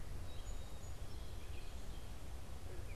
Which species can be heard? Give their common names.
Song Sparrow, Gray Catbird